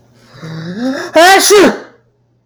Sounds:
Sneeze